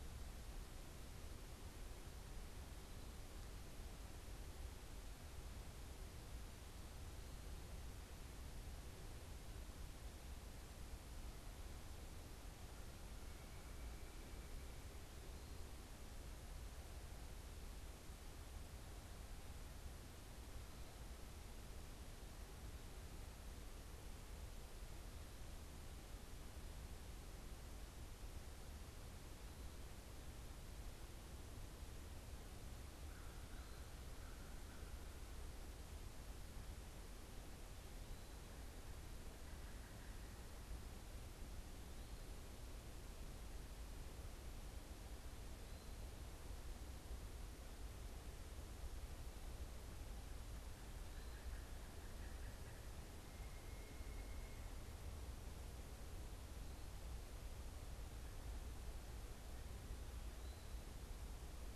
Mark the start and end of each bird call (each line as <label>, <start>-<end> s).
American Crow (Corvus brachyrhynchos), 32.8-35.3 s
Pileated Woodpecker (Dryocopus pileatus), 50.6-54.9 s